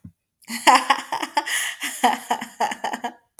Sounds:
Laughter